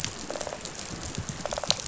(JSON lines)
{"label": "biophony, rattle response", "recorder": "SoundTrap 500"}